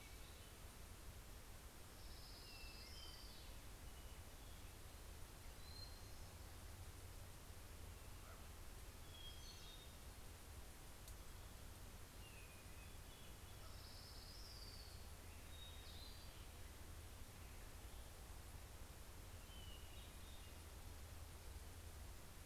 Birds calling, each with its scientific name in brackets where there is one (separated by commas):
Common Raven (Corvus corax), Hermit Thrush (Catharus guttatus), Orange-crowned Warbler (Leiothlypis celata)